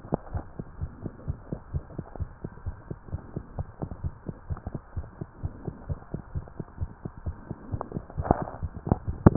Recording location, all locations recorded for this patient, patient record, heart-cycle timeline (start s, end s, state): tricuspid valve (TV)
aortic valve (AV)+pulmonary valve (PV)+tricuspid valve (TV)+mitral valve (MV)
#Age: Child
#Sex: Male
#Height: 110.0 cm
#Weight: 15.1 kg
#Pregnancy status: False
#Murmur: Absent
#Murmur locations: nan
#Most audible location: nan
#Systolic murmur timing: nan
#Systolic murmur shape: nan
#Systolic murmur grading: nan
#Systolic murmur pitch: nan
#Systolic murmur quality: nan
#Diastolic murmur timing: nan
#Diastolic murmur shape: nan
#Diastolic murmur grading: nan
#Diastolic murmur pitch: nan
#Diastolic murmur quality: nan
#Outcome: Normal
#Campaign: 2015 screening campaign
0.00	0.32	unannotated
0.32	0.44	S1
0.44	0.57	systole
0.57	0.66	S2
0.66	0.80	diastole
0.80	0.92	S1
0.92	1.03	systole
1.03	1.12	S2
1.12	1.27	diastole
1.27	1.35	S1
1.35	1.50	systole
1.50	1.57	S2
1.57	1.72	diastole
1.72	1.84	S1
1.84	1.97	systole
1.97	2.04	S2
2.04	2.18	diastole
2.18	2.30	S1
2.30	2.42	systole
2.42	2.50	S2
2.50	2.63	diastole
2.63	2.76	S1
2.76	2.88	systole
2.88	2.98	S2
2.98	3.11	diastole
3.11	3.19	S1
3.19	3.34	systole
3.34	3.42	S2
3.42	3.56	diastole
3.56	3.66	S1
3.66	3.80	systole
3.80	3.87	S2
3.87	4.03	diastole
4.03	4.10	S1
4.10	4.26	systole
4.26	4.34	S2
4.34	4.49	diastole
4.49	4.57	S1
4.57	4.73	systole
4.73	4.80	S2
4.80	4.94	diastole
4.94	5.04	S1
5.04	5.19	systole
5.19	5.26	S2
5.26	5.41	diastole
5.41	5.50	S1
5.50	5.65	systole
5.65	5.74	S2
5.74	5.88	diastole
5.88	5.98	S1
5.98	6.12	systole
6.12	6.22	S2
6.22	6.33	diastole
6.33	6.42	S1
6.42	6.57	systole
6.57	6.65	S2
6.65	6.79	diastole
6.79	6.90	S1
6.90	7.03	systole
7.03	7.12	S2
7.12	7.26	diastole
7.26	7.36	S1
7.36	7.48	systole
7.48	7.56	S2
7.56	7.72	diastole
7.72	7.79	S1
7.79	7.94	systole
7.94	8.04	S2
8.04	8.16	diastole
8.16	8.28	S1
8.28	9.36	unannotated